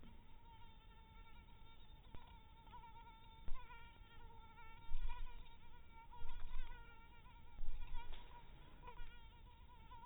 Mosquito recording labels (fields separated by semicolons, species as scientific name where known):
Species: mosquito; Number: one; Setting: cup